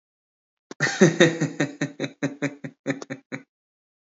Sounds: Laughter